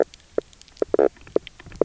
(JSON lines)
{"label": "biophony, knock croak", "recorder": "SoundTrap 300"}